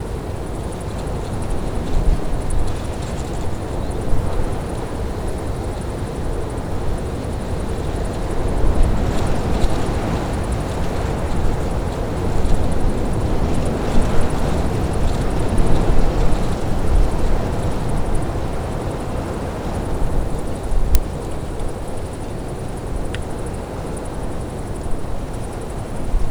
How calm is this?
very